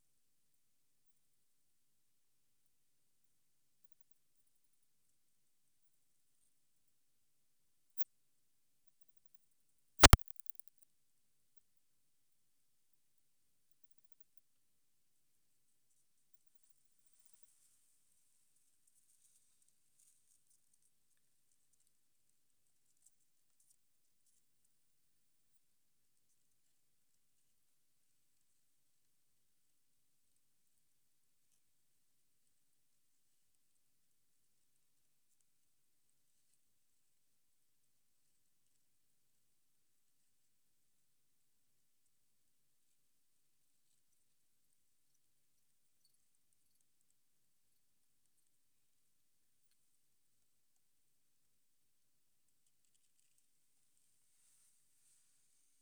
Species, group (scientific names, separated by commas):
Odontura maroccana, Orthoptera